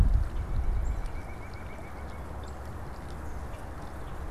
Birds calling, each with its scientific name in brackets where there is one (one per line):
White-breasted Nuthatch (Sitta carolinensis)
Common Grackle (Quiscalus quiscula)